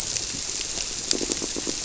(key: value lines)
label: biophony, squirrelfish (Holocentrus)
recorder: SoundTrap 300